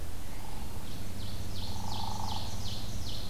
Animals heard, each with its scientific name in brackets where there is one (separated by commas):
Ovenbird (Seiurus aurocapilla), Hairy Woodpecker (Dryobates villosus)